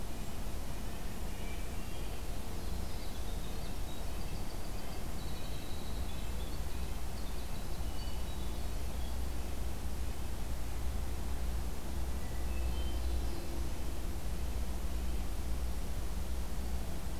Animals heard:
Red-breasted Nuthatch (Sitta canadensis), Hermit Thrush (Catharus guttatus), Black-throated Blue Warbler (Setophaga caerulescens), Winter Wren (Troglodytes hiemalis)

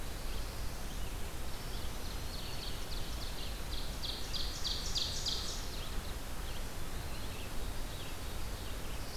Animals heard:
Black-throated Blue Warbler (Setophaga caerulescens), Red-eyed Vireo (Vireo olivaceus), Ovenbird (Seiurus aurocapilla), Black-throated Green Warbler (Setophaga virens)

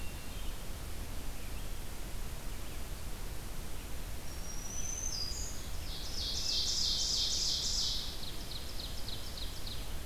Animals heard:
Ovenbird (Seiurus aurocapilla), Hermit Thrush (Catharus guttatus), Black-throated Green Warbler (Setophaga virens)

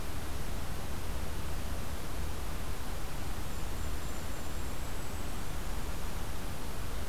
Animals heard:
Golden-crowned Kinglet (Regulus satrapa)

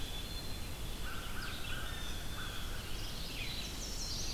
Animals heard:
Blue Jay (Cyanocitta cristata), American Crow (Corvus brachyrhynchos), Chestnut-sided Warbler (Setophaga pensylvanica), Red-eyed Vireo (Vireo olivaceus), Black-capped Chickadee (Poecile atricapillus)

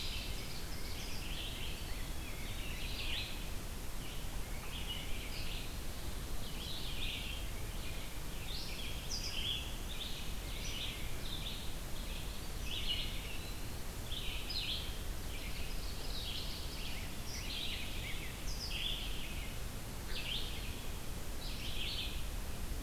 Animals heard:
Red-eyed Vireo (Vireo olivaceus), Eastern Wood-Pewee (Contopus virens), Ovenbird (Seiurus aurocapilla), Rose-breasted Grosbeak (Pheucticus ludovicianus)

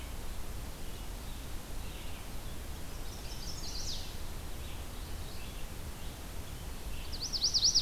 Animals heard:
Red-eyed Vireo (Vireo olivaceus), Chestnut-sided Warbler (Setophaga pensylvanica)

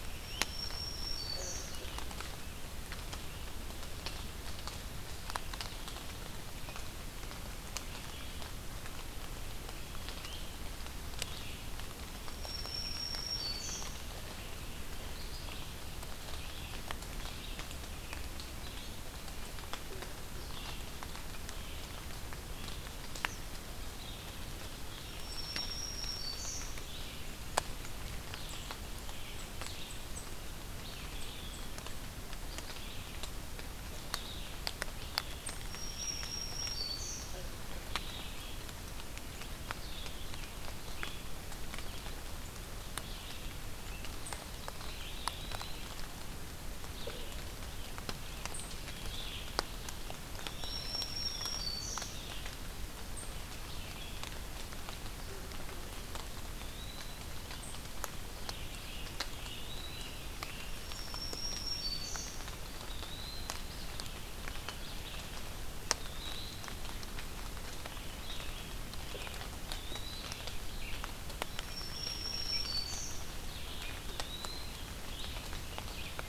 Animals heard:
Red-eyed Vireo (Vireo olivaceus), Black-throated Green Warbler (Setophaga virens), Eastern Wood-Pewee (Contopus virens)

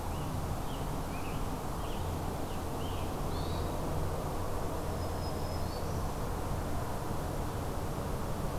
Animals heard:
Scarlet Tanager (Piranga olivacea), Black-throated Green Warbler (Setophaga virens), Hermit Thrush (Catharus guttatus)

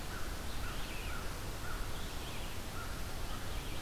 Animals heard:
Red-eyed Vireo (Vireo olivaceus), American Crow (Corvus brachyrhynchos)

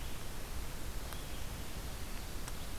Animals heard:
Red-eyed Vireo (Vireo olivaceus)

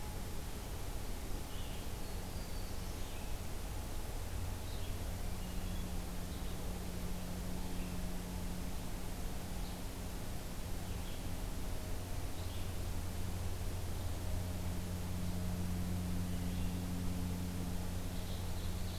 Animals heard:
Ovenbird (Seiurus aurocapilla), Black-throated Blue Warbler (Setophaga caerulescens), Hermit Thrush (Catharus guttatus), Red-eyed Vireo (Vireo olivaceus)

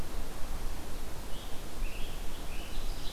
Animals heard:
Scarlet Tanager (Piranga olivacea)

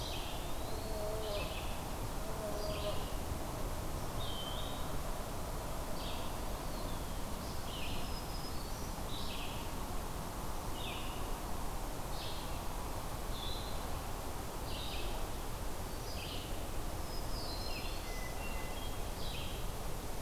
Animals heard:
Broad-winged Hawk (Buteo platypterus), Hermit Thrush (Catharus guttatus), Red-eyed Vireo (Vireo olivaceus), Eastern Wood-Pewee (Contopus virens), Black-throated Green Warbler (Setophaga virens)

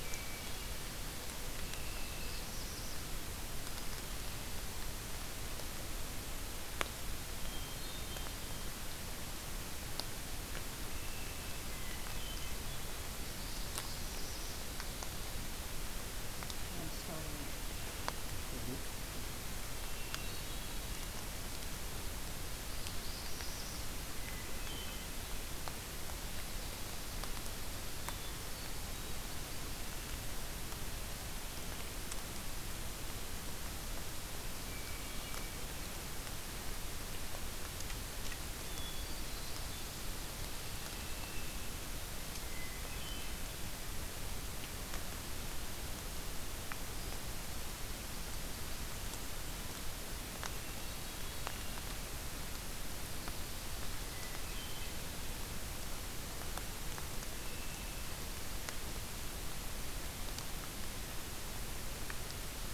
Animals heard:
Black-throated Blue Warbler (Setophaga caerulescens), Hermit Thrush (Catharus guttatus)

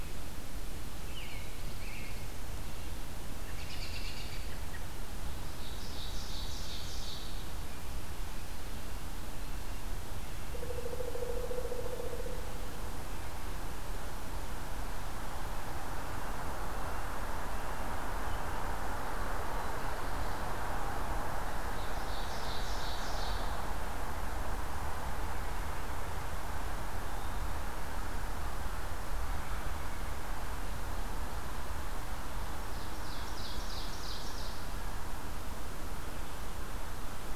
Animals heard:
Ovenbird (Seiurus aurocapilla), Black-throated Blue Warbler (Setophaga caerulescens), American Robin (Turdus migratorius), Pileated Woodpecker (Dryocopus pileatus), Red-breasted Nuthatch (Sitta canadensis)

